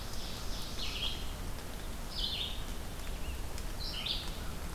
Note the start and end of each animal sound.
0.0s-1.2s: Ovenbird (Seiurus aurocapilla)
0.0s-4.7s: Red-eyed Vireo (Vireo olivaceus)
2.8s-4.7s: Rose-breasted Grosbeak (Pheucticus ludovicianus)

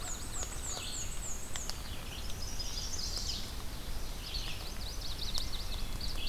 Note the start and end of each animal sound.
0.0s-0.6s: Yellow-rumped Warbler (Setophaga coronata)
0.0s-1.2s: American Crow (Corvus brachyrhynchos)
0.0s-1.8s: Black-and-white Warbler (Mniotilta varia)
0.0s-6.3s: Red-eyed Vireo (Vireo olivaceus)
2.0s-3.5s: Chestnut-sided Warbler (Setophaga pensylvanica)
4.1s-6.1s: Yellow-rumped Warbler (Setophaga coronata)

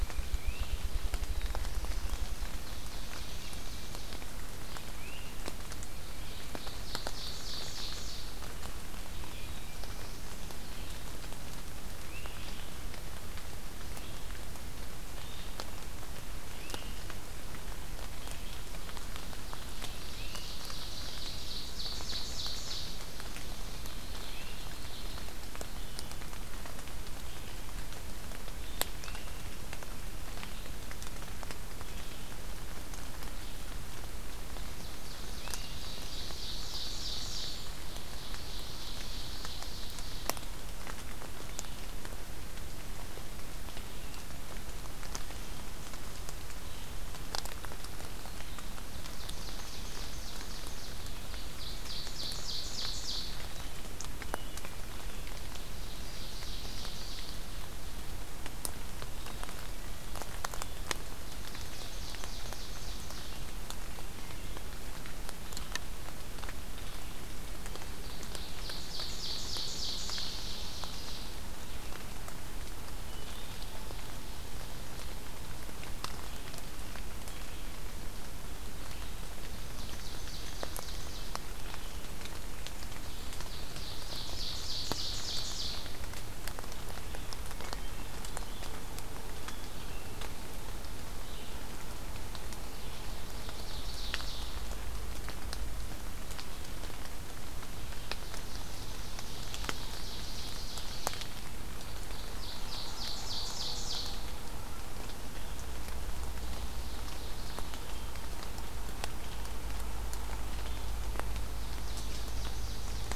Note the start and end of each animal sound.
0.0s-0.6s: Tufted Titmouse (Baeolophus bicolor)
0.0s-3.4s: Ruffed Grouse (Bonasa umbellus)
0.0s-23.5s: Red-eyed Vireo (Vireo olivaceus)
0.2s-0.9s: Great Crested Flycatcher (Myiarchus crinitus)
1.2s-2.7s: Black-throated Blue Warbler (Setophaga caerulescens)
2.4s-4.3s: Ovenbird (Seiurus aurocapilla)
4.9s-5.6s: Great Crested Flycatcher (Myiarchus crinitus)
6.1s-8.5s: Ovenbird (Seiurus aurocapilla)
9.1s-10.6s: Black-throated Blue Warbler (Setophaga caerulescens)
9.1s-10.3s: Tufted Titmouse (Baeolophus bicolor)
11.9s-12.5s: Great Crested Flycatcher (Myiarchus crinitus)
16.5s-17.0s: Great Crested Flycatcher (Myiarchus crinitus)
19.7s-25.1s: Ovenbird (Seiurus aurocapilla)
20.0s-20.4s: Great Crested Flycatcher (Myiarchus crinitus)
24.0s-24.8s: Blue Jay (Cyanocitta cristata)
25.4s-82.0s: Red-eyed Vireo (Vireo olivaceus)
28.8s-29.5s: Great Crested Flycatcher (Myiarchus crinitus)
34.5s-40.5s: Ovenbird (Seiurus aurocapilla)
35.3s-35.8s: Great Crested Flycatcher (Myiarchus crinitus)
49.1s-53.4s: Ovenbird (Seiurus aurocapilla)
54.2s-54.9s: Wood Thrush (Hylocichla mustelina)
55.7s-57.5s: Ovenbird (Seiurus aurocapilla)
59.2s-60.5s: Wood Thrush (Hylocichla mustelina)
61.2s-63.4s: Ovenbird (Seiurus aurocapilla)
68.1s-71.3s: Ovenbird (Seiurus aurocapilla)
73.0s-73.7s: Wood Thrush (Hylocichla mustelina)
79.5s-81.5s: Ovenbird (Seiurus aurocapilla)
83.0s-86.0s: Ovenbird (Seiurus aurocapilla)
86.7s-113.2s: Red-eyed Vireo (Vireo olivaceus)
87.6s-88.4s: Wood Thrush (Hylocichla mustelina)
89.3s-90.4s: Wood Thrush (Hylocichla mustelina)
92.8s-94.7s: Ovenbird (Seiurus aurocapilla)
97.8s-104.3s: Ovenbird (Seiurus aurocapilla)
106.2s-107.9s: Ovenbird (Seiurus aurocapilla)
111.6s-113.2s: Ovenbird (Seiurus aurocapilla)

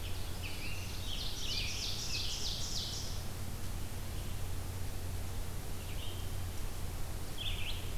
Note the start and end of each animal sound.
0.0s-2.6s: Scarlet Tanager (Piranga olivacea)
0.0s-3.4s: Ovenbird (Seiurus aurocapilla)
0.0s-8.0s: Red-eyed Vireo (Vireo olivaceus)

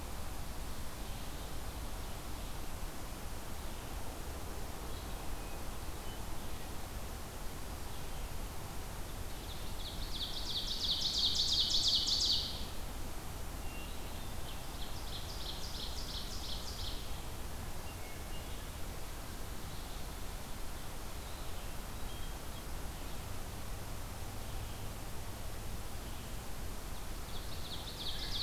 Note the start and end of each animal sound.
0.7s-28.4s: Red-eyed Vireo (Vireo olivaceus)
9.0s-12.6s: Ovenbird (Seiurus aurocapilla)
13.9s-17.0s: Ovenbird (Seiurus aurocapilla)
26.9s-28.4s: Ovenbird (Seiurus aurocapilla)

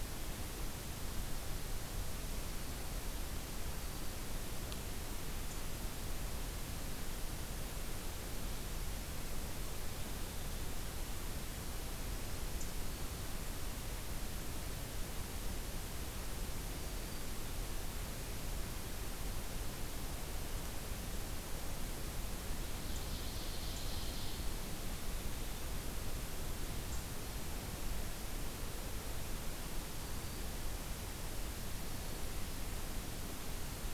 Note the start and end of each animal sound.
3.5s-4.2s: Black-throated Green Warbler (Setophaga virens)
12.7s-13.3s: Black-throated Green Warbler (Setophaga virens)
16.6s-17.3s: Black-throated Green Warbler (Setophaga virens)
22.5s-24.5s: Ovenbird (Seiurus aurocapilla)
29.8s-30.5s: Black-throated Green Warbler (Setophaga virens)

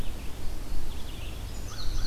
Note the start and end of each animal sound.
0.0s-2.1s: Red-eyed Vireo (Vireo olivaceus)
1.4s-2.1s: Indigo Bunting (Passerina cyanea)
1.6s-2.1s: American Crow (Corvus brachyrhynchos)

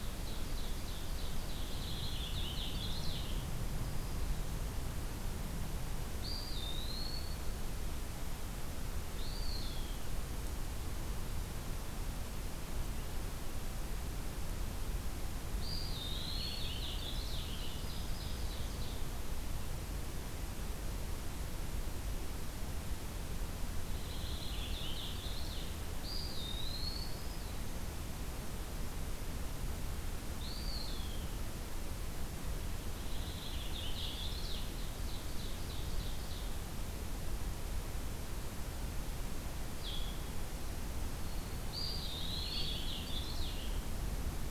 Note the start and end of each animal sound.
0.0s-1.6s: Ovenbird (Seiurus aurocapilla)
1.3s-3.5s: Purple Finch (Haemorhous purpureus)
6.2s-7.3s: Eastern Wood-Pewee (Contopus virens)
9.1s-10.1s: Eastern Wood-Pewee (Contopus virens)
15.6s-16.5s: Eastern Wood-Pewee (Contopus virens)
16.0s-17.6s: Purple Finch (Haemorhous purpureus)
17.0s-19.0s: Ovenbird (Seiurus aurocapilla)
17.4s-18.7s: Black-throated Green Warbler (Setophaga virens)
23.8s-25.8s: Purple Finch (Haemorhous purpureus)
26.0s-27.2s: Eastern Wood-Pewee (Contopus virens)
26.2s-27.9s: Black-throated Green Warbler (Setophaga virens)
30.4s-31.3s: Eastern Wood-Pewee (Contopus virens)
32.9s-34.7s: Purple Finch (Haemorhous purpureus)
34.6s-36.6s: Ovenbird (Seiurus aurocapilla)
39.7s-40.3s: Blue-headed Vireo (Vireo solitarius)
41.7s-42.8s: Eastern Wood-Pewee (Contopus virens)
42.1s-43.7s: Purple Finch (Haemorhous purpureus)

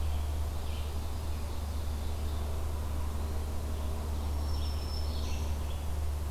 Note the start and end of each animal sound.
0.0s-6.3s: Red-eyed Vireo (Vireo olivaceus)
0.4s-2.8s: Ovenbird (Seiurus aurocapilla)
4.0s-5.8s: Black-throated Green Warbler (Setophaga virens)

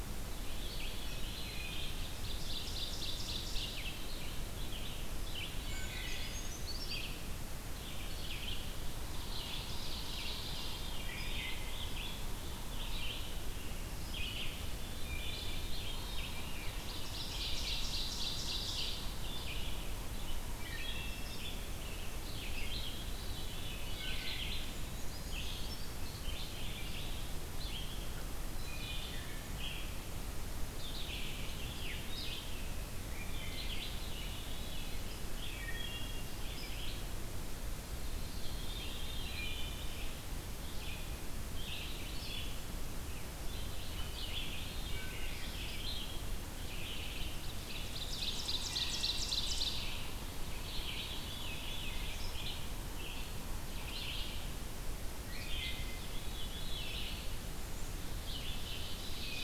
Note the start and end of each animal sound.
0.0s-59.4s: Red-eyed Vireo (Vireo olivaceus)
0.3s-2.3s: Veery (Catharus fuscescens)
1.9s-4.0s: Ovenbird (Seiurus aurocapilla)
5.6s-6.3s: Wood Thrush (Hylocichla mustelina)
5.6s-7.2s: Brown Creeper (Certhia americana)
9.0s-11.0s: Ovenbird (Seiurus aurocapilla)
10.4s-11.6s: Veery (Catharus fuscescens)
15.0s-15.6s: Wood Thrush (Hylocichla mustelina)
15.4s-16.8s: Veery (Catharus fuscescens)
16.7s-19.3s: Ovenbird (Seiurus aurocapilla)
20.5s-21.3s: Wood Thrush (Hylocichla mustelina)
23.1s-23.9s: Veery (Catharus fuscescens)
23.8s-24.3s: Wood Thrush (Hylocichla mustelina)
24.7s-26.2s: Brown Creeper (Certhia americana)
28.6s-29.3s: Wood Thrush (Hylocichla mustelina)
31.7s-32.1s: Veery (Catharus fuscescens)
33.1s-33.7s: Wood Thrush (Hylocichla mustelina)
33.8s-35.1s: Veery (Catharus fuscescens)
35.5s-36.3s: Wood Thrush (Hylocichla mustelina)
38.1s-39.7s: Veery (Catharus fuscescens)
39.2s-39.8s: Wood Thrush (Hylocichla mustelina)
44.8s-45.3s: Wood Thrush (Hylocichla mustelina)
47.6s-50.2s: Ovenbird (Seiurus aurocapilla)
48.7s-49.3s: Wood Thrush (Hylocichla mustelina)
50.5s-52.2s: Veery (Catharus fuscescens)
55.2s-56.1s: Wood Thrush (Hylocichla mustelina)
56.0s-57.4s: Veery (Catharus fuscescens)
58.1s-59.4s: Ovenbird (Seiurus aurocapilla)

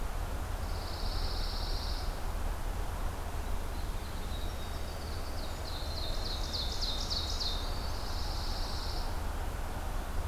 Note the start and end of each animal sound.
0.5s-2.2s: Pine Warbler (Setophaga pinus)
3.6s-8.8s: Winter Wren (Troglodytes hiemalis)
5.0s-7.7s: Ovenbird (Seiurus aurocapilla)
7.4s-9.1s: Pine Warbler (Setophaga pinus)

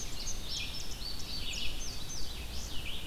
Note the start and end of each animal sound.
0.0s-2.8s: Indigo Bunting (Passerina cyanea)
0.0s-3.1s: Red-eyed Vireo (Vireo olivaceus)

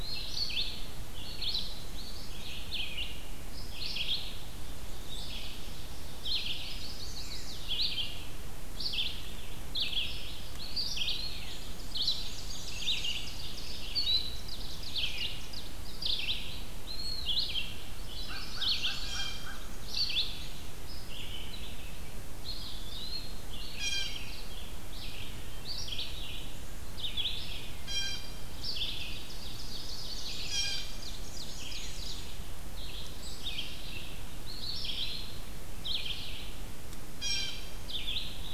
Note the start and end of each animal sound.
0.0s-3.0s: Red-eyed Vireo (Vireo olivaceus)
3.4s-38.5s: Red-eyed Vireo (Vireo olivaceus)
6.2s-7.9s: Chestnut-sided Warbler (Setophaga pensylvanica)
10.1s-11.8s: Eastern Wood-Pewee (Contopus virens)
11.3s-13.8s: Black-and-white Warbler (Mniotilta varia)
11.9s-15.8s: Ovenbird (Seiurus aurocapilla)
16.6s-17.6s: Eastern Wood-Pewee (Contopus virens)
17.9s-19.5s: Chestnut-sided Warbler (Setophaga pensylvanica)
18.0s-20.2s: American Crow (Corvus brachyrhynchos)
19.0s-19.6s: Blue Jay (Cyanocitta cristata)
22.3s-23.7s: Eastern Wood-Pewee (Contopus virens)
23.5s-24.4s: Blue Jay (Cyanocitta cristata)
27.6s-28.4s: Blue Jay (Cyanocitta cristata)
29.0s-32.4s: Ovenbird (Seiurus aurocapilla)
30.4s-31.1s: Blue Jay (Cyanocitta cristata)
34.3s-35.6s: Eastern Wood-Pewee (Contopus virens)
36.9s-38.0s: Blue Jay (Cyanocitta cristata)

